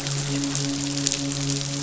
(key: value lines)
label: biophony, midshipman
recorder: SoundTrap 500